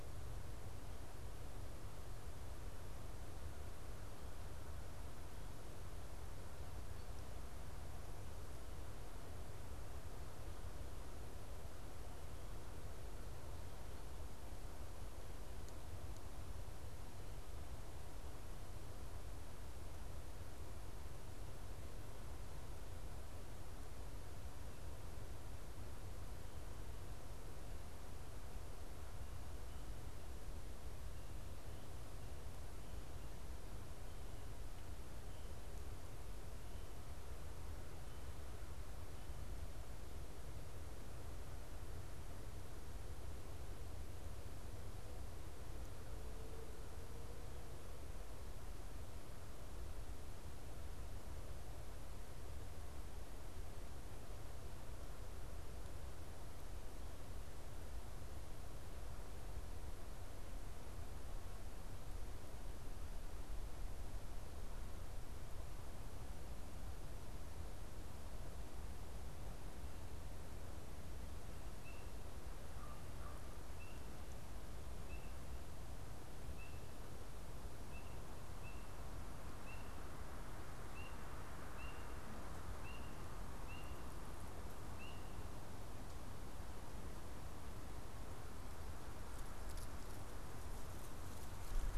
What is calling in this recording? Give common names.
Common Raven